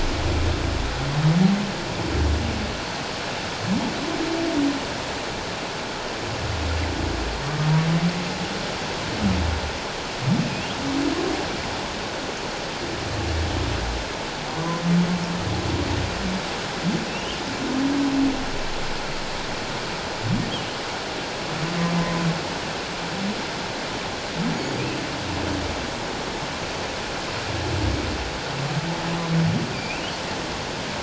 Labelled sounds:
17.1	17.4	humpback whale, 2.5 to 3.3 kHz
22.0	22.2	humpback whale, 0.97 to 1.1 kHz
29.7	30.0	humpback whale, 2.3 to 2.8 kHz

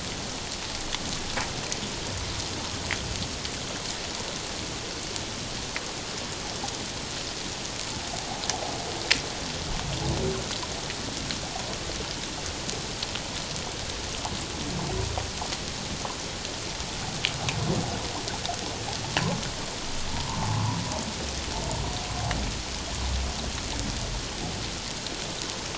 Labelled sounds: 20.3	20.8	humpback whale, 0.81 to 1.2 kHz

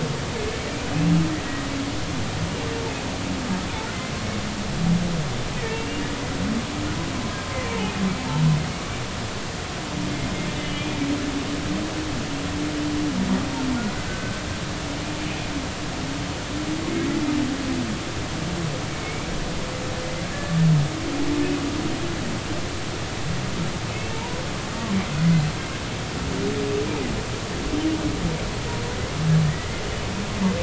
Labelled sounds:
5.7	6.1	humpback whale, 2.7 to 2.8 kHz
10.6	11.0	humpback whale, 2.3 to 3.0 kHz
15.1	15.4	humpback whale, 1.5 to 1.6 kHz
19.0	19.3	humpback whale, 2.1 to 2.4 kHz
23.9	24.4	humpback whale, 0.83 to 2.7 kHz

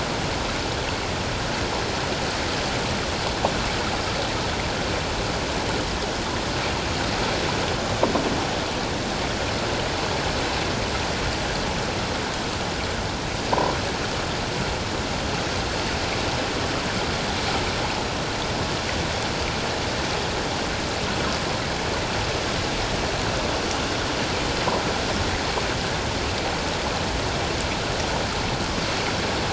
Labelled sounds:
13.5	13.8	croaking sound likely from a nearby submerged object, 0.88 to 1.1 kHz

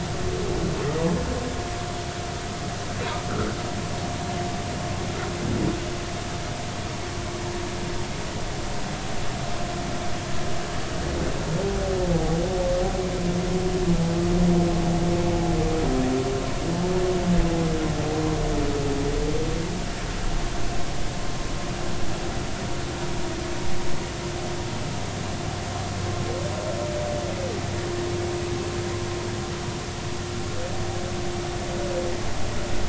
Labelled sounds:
3.3	3.5	humpback whale, 1.2 to 1.6 kHz
12.0	12.4	humpback whale, 0.80 to 0.93 kHz

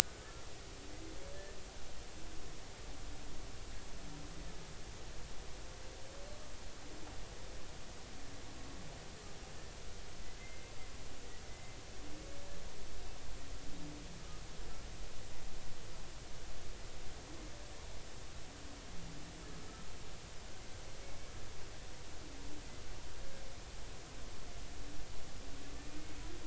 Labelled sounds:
10.4	10.7	humpback whale, 2.0 to 2.1 kHz
11.5	11.8	humpback whale, 2.0 to 2.1 kHz

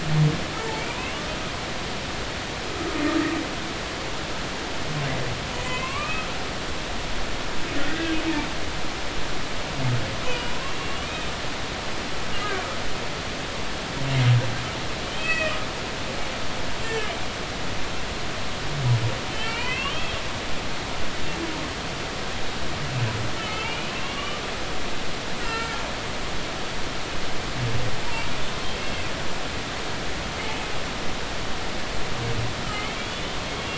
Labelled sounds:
0.8	1.2	humpback whale, 2.2 to 2.9 kHz
5.6	6.3	humpback whale, 0.96 to 2.9 kHz
7.8	8.2	humpback whale, 1.4 to 1.7 kHz
10.2	11.3	humpback whale, 0.93 to 3.8 kHz
15.0	15.6	humpback whale, 1.8 to 4.6 kHz
16.8	17.1	humpback whale, 1.6 to 1.9 kHz
19.3	20.9	humpback whale, 1.9 to 4.6 kHz
23.4	24.4	humpback whale, 1.0 to 3.0 kHz
25.4	25.8	humpback whale, 1.3 to 2.0 kHz
32.9	33.4	humpback whale, 3.1 to 3.7 kHz

